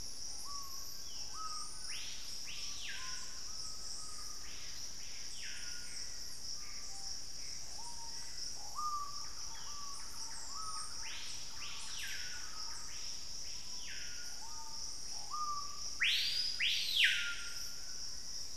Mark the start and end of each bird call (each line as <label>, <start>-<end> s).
Screaming Piha (Lipaugus vociferans), 0.0-18.5 s
Gray Antbird (Cercomacra cinerascens), 5.4-7.8 s
unidentified bird, 7.8-8.6 s
Thrush-like Wren (Campylorhynchus turdinus), 8.9-12.8 s